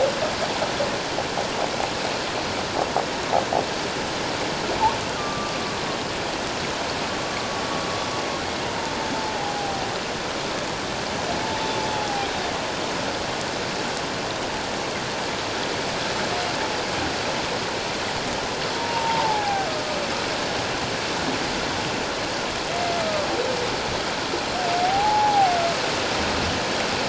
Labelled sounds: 5.2	5.6	humpback whale, 1.1 to 1.2 kHz
9.6	9.8	humpback whale, 0.78 to 0.84 kHz
11.4	12.3	humpback whale, 0.78 to 0.94 kHz
18.8	19.7	humpback whale, 0.78 to 1.7 kHz
23.0	23.3	humpback whale, 1.1 to 1.4 kHz
24.8	25.5	humpback whale, 0.78 to 0.91 kHz

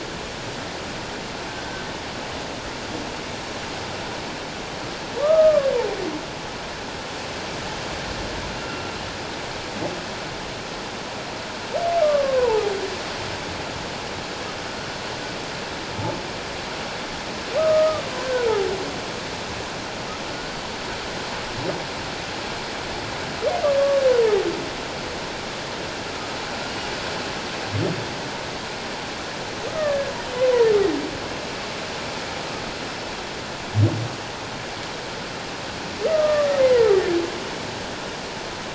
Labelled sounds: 5.2	5.7	humpback whale, 1.0 to 1.3 kHz
8.6	8.9	humpback whale, 1.3 to 1.5 kHz
12.0	12.6	humpback whale, 0.81 to 1.2 kHz
17.6	18.6	humpback whale, 1.2 to 1.6 kHz
23.8	24.0	humpback whale, 1.1 to 1.2 kHz
29.8	30.1	humpback whale, 1.6 to 1.9 kHz
36.1	37.2	humpback whale, 1.1 to 2.2 kHz

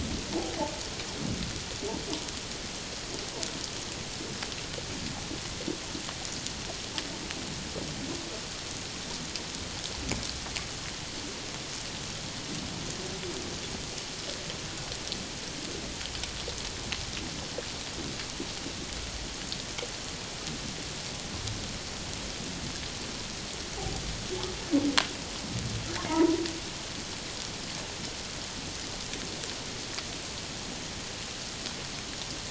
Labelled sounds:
26.1	26.4	humpback whale, 0.88 to 1.0 kHz

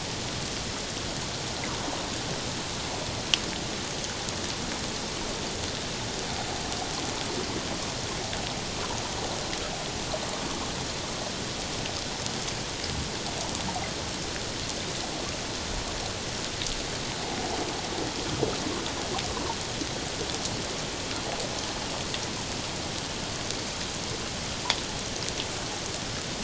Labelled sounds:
17.2	17.5	water noise, 0.78 to 1.0 kHz

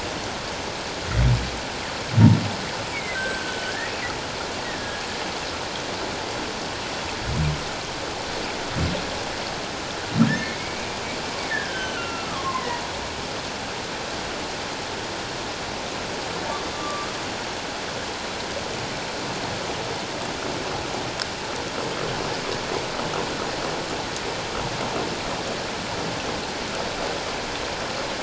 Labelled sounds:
2.9	3.9	humpback whale, 1.5 to 7.9 kHz
4.6	5.0	humpback whale, 1.6 to 2.0 kHz
10.3	10.9	humpback whale, 1.7 to 2.3 kHz
11.5	12.8	humpback whale, 0.91 to 3.2 kHz
16.5	17.1	humpback whale, 1.1 to 3.6 kHz

